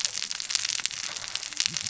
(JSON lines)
{"label": "biophony, cascading saw", "recorder": "SoundTrap 600 or HydroMoth"}